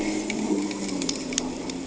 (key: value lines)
label: anthrophony, boat engine
recorder: HydroMoth